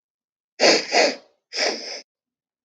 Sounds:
Sniff